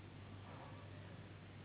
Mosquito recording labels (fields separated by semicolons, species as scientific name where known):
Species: Anopheles gambiae s.s.; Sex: female; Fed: unfed; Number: one; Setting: insect culture